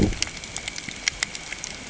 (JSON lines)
{"label": "ambient", "recorder": "HydroMoth"}